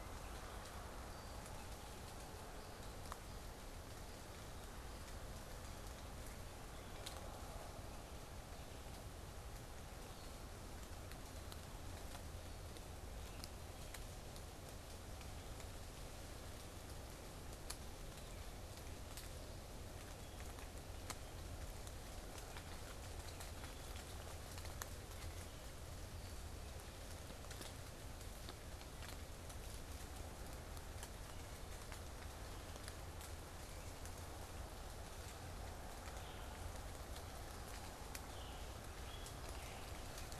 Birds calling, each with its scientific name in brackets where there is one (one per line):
Scarlet Tanager (Piranga olivacea)